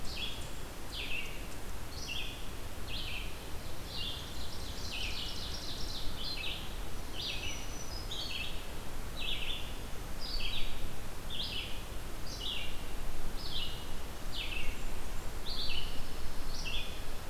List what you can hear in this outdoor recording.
Red-eyed Vireo, Ovenbird, Black-throated Green Warbler, Blackburnian Warbler, Pine Warbler